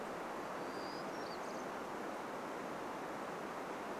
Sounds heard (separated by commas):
Townsend's Warbler song